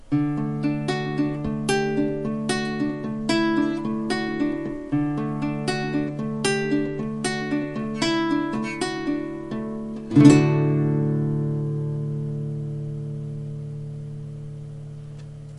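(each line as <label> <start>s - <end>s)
A guitar is played beautifully and the sound slowly fades away. 0.0s - 15.6s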